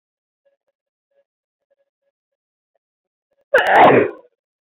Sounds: Sneeze